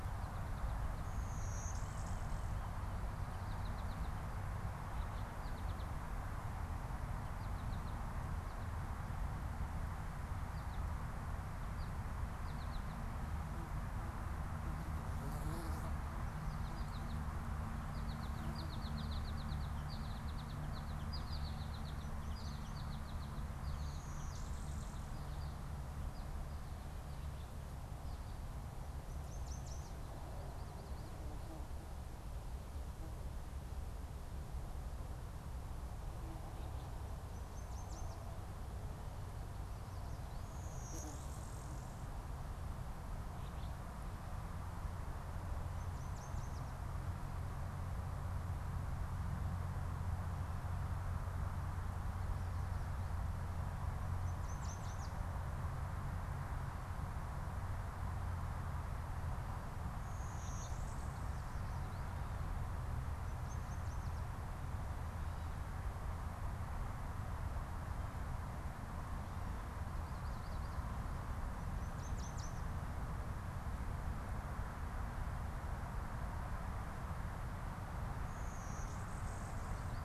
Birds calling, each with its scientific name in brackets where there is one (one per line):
American Goldfinch (Spinus tristis)
Blue-winged Warbler (Vermivora cyanoptera)
Alder Flycatcher (Empidonax alnorum)
Yellow Warbler (Setophaga petechia)